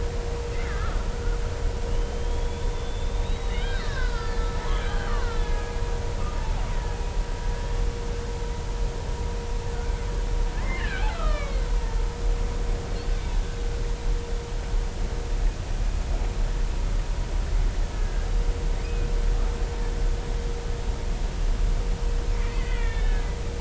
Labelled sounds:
0.5	1.0	killer whale, Bigg's (transient), 1.2 to 2.3 kHz
1.9	5.7	killer whale, Bigg's (transient), 0.99 to 5.0 kHz
10.7	11.7	killer whale, Bigg's (transient), 1.1 to 4.4 kHz
17.9	19.1	killer whale, Bigg's (transient), 1.6 to 2.6 kHz
22.4	23.3	killer whale, Bigg's (transient), 1.3 to 3.8 kHz

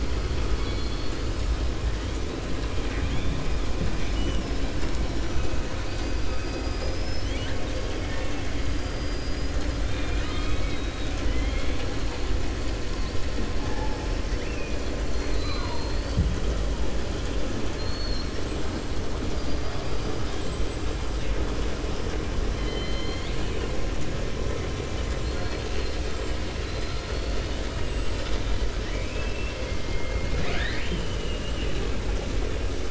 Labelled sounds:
0.2	1.2	killer whale, 2.5 to 5.4 kHz
2.6	3.4	killer whale, 1.5 to 3.7 kHz
3.9	4.4	killer whale, 1.6 to 3.6 kHz
6.2	7.6	killer whale, 1.6 to 6.1 kHz
7.9	8.5	killer whale, 0.91 to 3.7 kHz
8.7	9.7	killer whale, 4.8 to 7.1 kHz
14.3	14.8	killer whale, 1.8 to 3.4 kHz
15.1	16.2	killer whale, 0.87 to 6.1 kHz
17.7	18.4	killer whale, 3.2 to 5.6 kHz
19.2	20.9	killer whale, 3.2 to 8.0 kHz
22.5	23.7	killer whale, 1.8 to 4.5 kHz
25.2	26.0	killer whale, 0.74 to 5.2 kHz
26.5	27.6	killer whale, 3.3 to 5.1 kHz
28.8	29.6	killer whale, 1.7 to 3.5 kHz

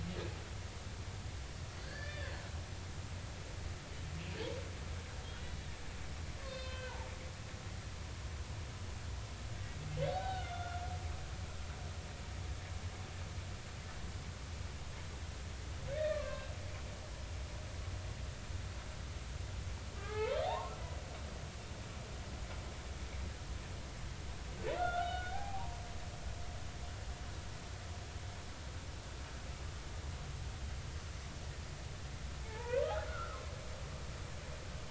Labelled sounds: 1.7	2.3	humpback whale, 1.5 to 4.7 kHz
6.4	7.1	humpback whale, 0.80 to 5.2 kHz
10.0	10.8	humpback whale, 1.3 to 3.9 kHz
16.0	16.5	humpback whale, 0.99 to 2.8 kHz
20.0	20.7	humpback whale, 0.80 to 2.3 kHz
24.7	25.7	humpback whale, 0.80 to 3.0 kHz
32.4	33.5	humpback whale, 0.83 to 1.5 kHz

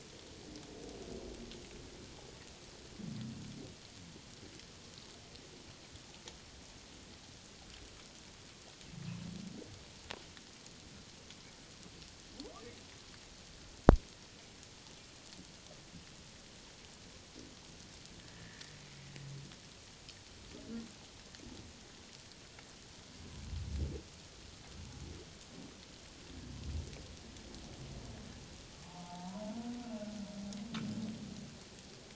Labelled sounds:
18.3	18.7	humpback whale, 1.6 to 2.0 kHz
28.8	29.5	humpback whale, 0.78 to 1.0 kHz

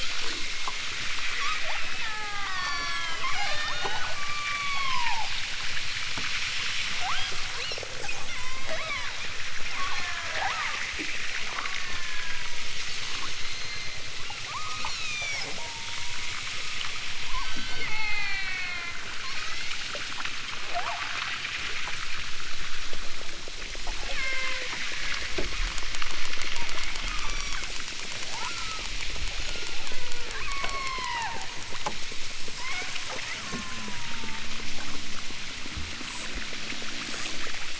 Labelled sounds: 0.0	5.3	killer whale, southern Alaska resident, 0.21 to 8.0 kHz
7.0	9.2	killer whale, southern Alaska resident, 0.38 to 6.7 kHz
9.8	10.8	killer whale, southern Alaska resident, 0.32 to 2.5 kHz
11.5	12.7	killer whale, southern Alaska resident, 0.69 to 5.1 kHz
13.4	14.0	killer whale, southern Alaska resident, 1.7 to 6.7 kHz
14.4	16.9	killer whale, southern Alaska resident, 0.38 to 8.0 kHz
17.2	19.0	killer whale, southern Alaska resident, 0.43 to 8.0 kHz
19.3	19.8	killer whale, southern Alaska resident, 0.90 to 7.1 kHz
20.7	21.0	killer whale, southern Alaska resident, 0.30 to 1.9 kHz
24.1	24.7	killer whale, southern Alaska resident, 0.30 to 5.7 kHz
26.4	26.7	killer whale, southern Alaska resident, 0.64 to 2.0 kHz
27.1	27.7	killer whale, southern Alaska resident, 0.85 to 8.0 kHz
28.3	28.9	killer whale, southern Alaska resident, 0.64 to 1.8 kHz
29.4	31.5	killer whale, southern Alaska resident, 0.30 to 5.9 kHz
32.6	34.4	killer whale, southern Alaska resident, 0.47 to 5.3 kHz

